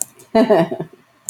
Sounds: Laughter